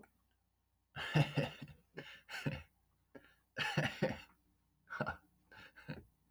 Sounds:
Laughter